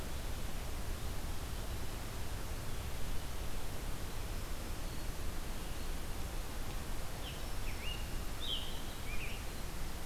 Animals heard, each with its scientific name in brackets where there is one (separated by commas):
Black-throated Green Warbler (Setophaga virens), Scarlet Tanager (Piranga olivacea)